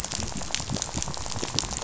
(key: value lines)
label: biophony, rattle
recorder: SoundTrap 500